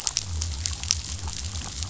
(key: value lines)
label: biophony
recorder: SoundTrap 500